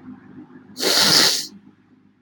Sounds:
Sniff